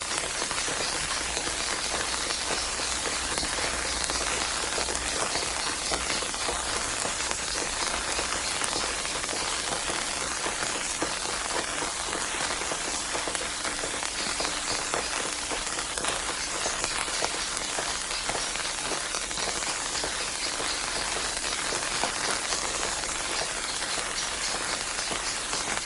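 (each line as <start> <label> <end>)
0.0 Heavy rain falling evenly. 25.8
0.0 A bird chirps regularly in the distance. 10.6
16.0 A steady, regular sound of single raindrops falling. 25.9
16.3 A bird chirps regularly in the distance. 25.9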